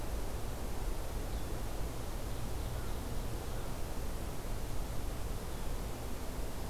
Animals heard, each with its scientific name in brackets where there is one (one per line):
Ovenbird (Seiurus aurocapilla)